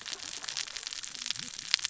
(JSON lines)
{"label": "biophony, cascading saw", "recorder": "SoundTrap 600 or HydroMoth"}